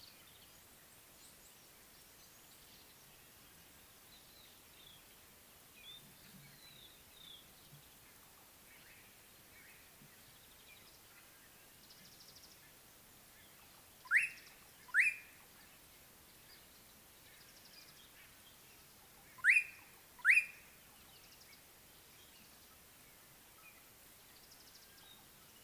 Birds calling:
White-browed Robin-Chat (Cossypha heuglini), Slate-colored Boubou (Laniarius funebris)

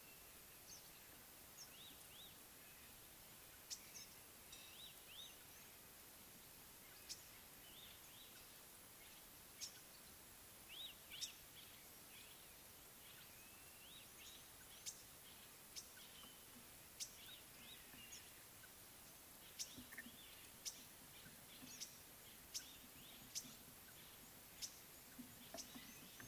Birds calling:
Green-winged Pytilia (Pytilia melba), Red-backed Scrub-Robin (Cercotrichas leucophrys)

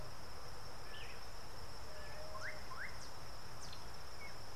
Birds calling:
Slate-colored Boubou (Laniarius funebris)

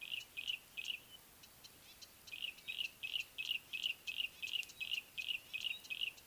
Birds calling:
Yellow-breasted Apalis (Apalis flavida)

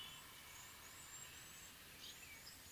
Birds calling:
Red-cheeked Cordonbleu (Uraeginthus bengalus)

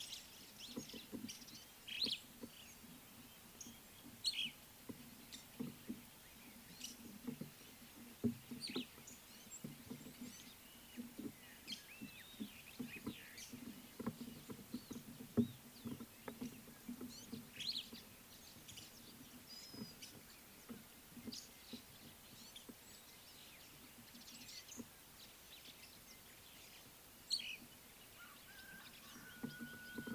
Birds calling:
Superb Starling (Lamprotornis superbus), Gray-backed Camaroptera (Camaroptera brevicaudata)

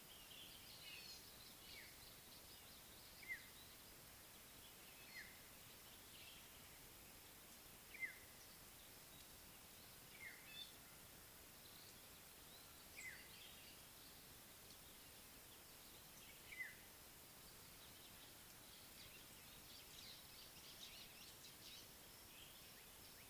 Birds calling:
African Black-headed Oriole (Oriolus larvatus), Gray-backed Camaroptera (Camaroptera brevicaudata), White-browed Sparrow-Weaver (Plocepasser mahali)

